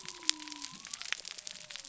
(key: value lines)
label: biophony
recorder: SoundTrap 300